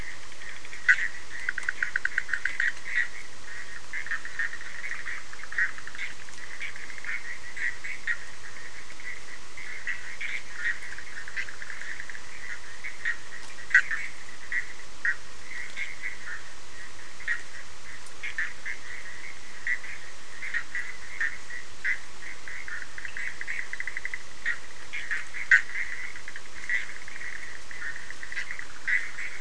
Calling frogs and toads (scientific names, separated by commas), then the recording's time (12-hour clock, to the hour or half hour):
Boana bischoffi
11:30pm